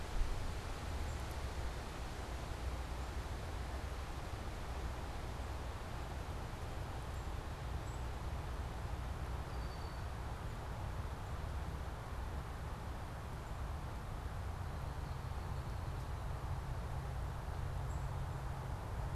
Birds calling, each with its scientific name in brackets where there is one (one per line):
Red-winged Blackbird (Agelaius phoeniceus)
unidentified bird